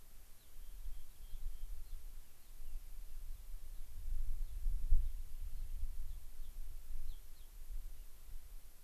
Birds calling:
Rock Wren (Salpinctes obsoletus), Gray-crowned Rosy-Finch (Leucosticte tephrocotis)

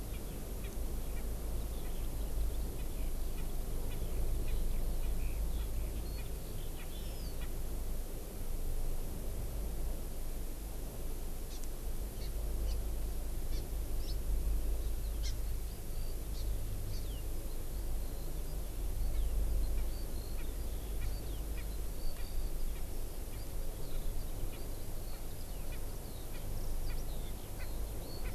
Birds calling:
Hawaii Amakihi (Chlorodrepanis virens), Erckel's Francolin (Pternistis erckelii), Eurasian Skylark (Alauda arvensis)

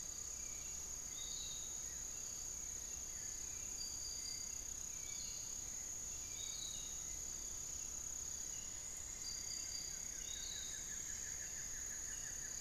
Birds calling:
Buff-throated Woodcreeper (Xiphorhynchus guttatus), Long-winged Antwren (Myrmotherula longipennis), Piratic Flycatcher (Legatus leucophaius), Hauxwell's Thrush (Turdus hauxwelli), Cinnamon-throated Woodcreeper (Dendrexetastes rufigula), Barred Forest-Falcon (Micrastur ruficollis)

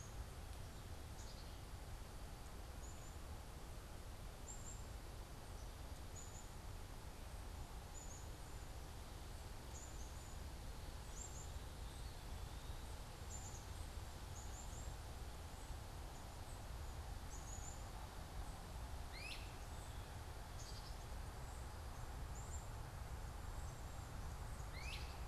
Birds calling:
Black-capped Chickadee (Poecile atricapillus), Great Crested Flycatcher (Myiarchus crinitus)

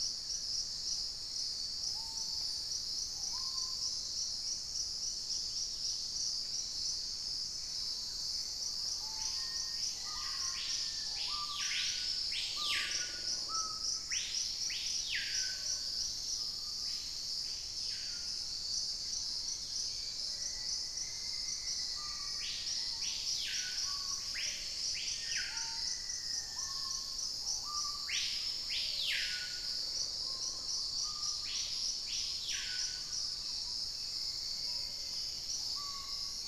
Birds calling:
Black-faced Antthrush (Formicarius analis), Wing-barred Piprites (Piprites chloris), Black-capped Becard (Pachyramphus marginatus), Thrush-like Wren (Campylorhynchus turdinus), Dusky-capped Greenlet (Pachysylvia hypoxantha), Purple-throated Fruitcrow (Querula purpurata), Hauxwell's Thrush (Turdus hauxwelli), Plumbeous Pigeon (Patagioenas plumbea), Screaming Piha (Lipaugus vociferans), unidentified bird

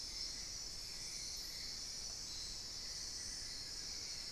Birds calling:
Amazonian Barred-Woodcreeper (Dendrocolaptes certhia)

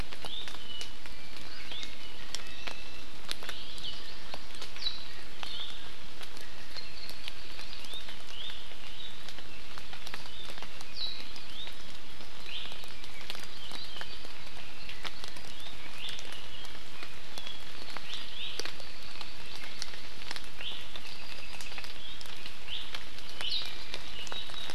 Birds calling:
Iiwi (Drepanis coccinea), Apapane (Himatione sanguinea), Hawaii Amakihi (Chlorodrepanis virens)

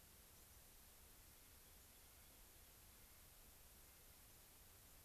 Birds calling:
White-crowned Sparrow (Zonotrichia leucophrys), Rock Wren (Salpinctes obsoletus), Clark's Nutcracker (Nucifraga columbiana)

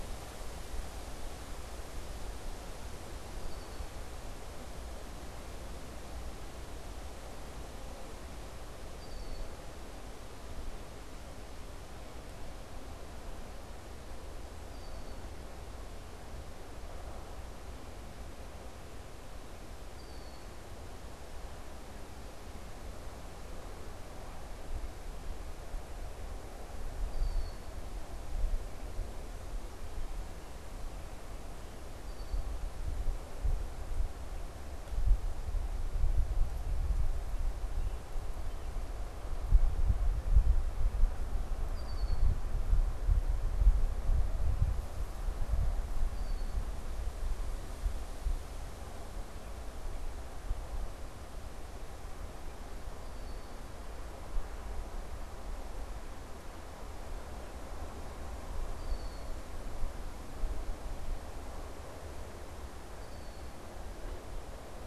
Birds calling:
Red-winged Blackbird (Agelaius phoeniceus)

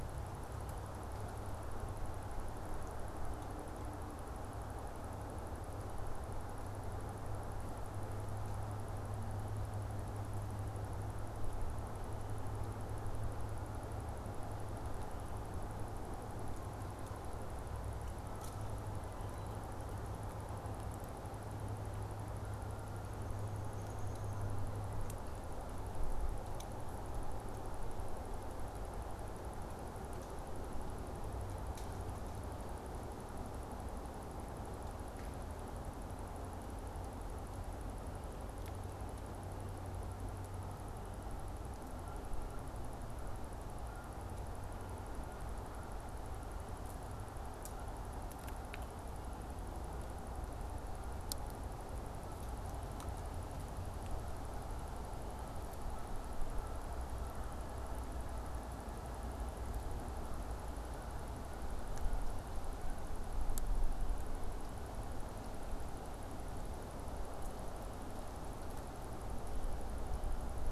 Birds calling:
Downy Woodpecker (Dryobates pubescens)

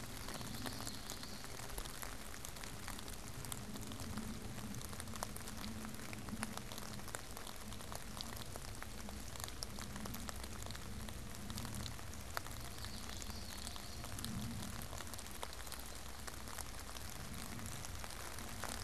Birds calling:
Common Yellowthroat (Geothlypis trichas)

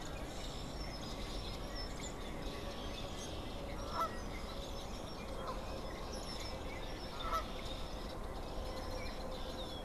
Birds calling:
unidentified bird, Canada Goose (Branta canadensis)

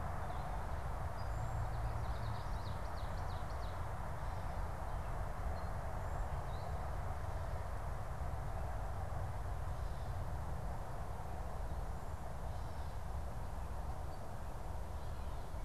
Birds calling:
Common Yellowthroat (Geothlypis trichas), Ovenbird (Seiurus aurocapilla)

